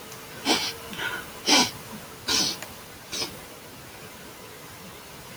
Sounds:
Sniff